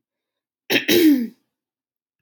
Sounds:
Throat clearing